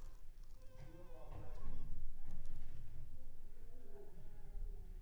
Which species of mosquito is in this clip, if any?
Anopheles funestus s.l.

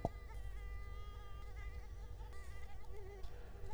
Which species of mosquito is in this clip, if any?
Culex quinquefasciatus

